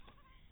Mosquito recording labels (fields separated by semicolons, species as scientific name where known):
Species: mosquito; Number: one; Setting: cup